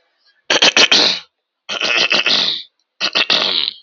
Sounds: Throat clearing